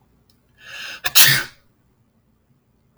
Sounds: Sneeze